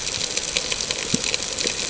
{"label": "ambient", "recorder": "HydroMoth"}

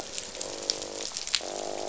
{"label": "biophony, croak", "recorder": "SoundTrap 500"}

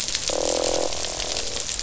{"label": "biophony, croak", "recorder": "SoundTrap 500"}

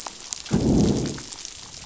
{"label": "biophony, growl", "recorder": "SoundTrap 500"}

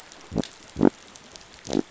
{"label": "biophony", "recorder": "SoundTrap 500"}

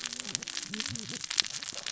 {"label": "biophony, cascading saw", "recorder": "SoundTrap 600 or HydroMoth"}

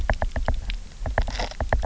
{"label": "biophony, knock", "recorder": "SoundTrap 300"}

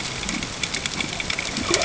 {"label": "ambient", "recorder": "HydroMoth"}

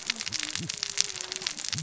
{"label": "biophony, cascading saw", "recorder": "SoundTrap 600 or HydroMoth"}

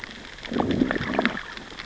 {"label": "biophony, growl", "recorder": "SoundTrap 600 or HydroMoth"}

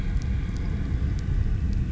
{"label": "anthrophony, boat engine", "recorder": "SoundTrap 300"}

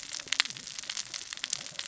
{"label": "biophony, cascading saw", "recorder": "SoundTrap 600 or HydroMoth"}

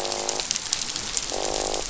{"label": "biophony, croak", "recorder": "SoundTrap 500"}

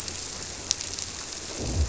{"label": "biophony", "recorder": "SoundTrap 300"}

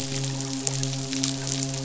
{"label": "biophony, midshipman", "recorder": "SoundTrap 500"}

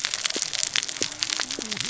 {"label": "biophony, cascading saw", "recorder": "SoundTrap 600 or HydroMoth"}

